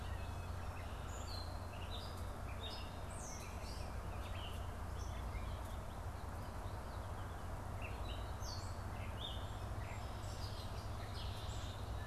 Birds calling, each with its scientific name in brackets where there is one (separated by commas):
Gray Catbird (Dumetella carolinensis), Red-winged Blackbird (Agelaius phoeniceus)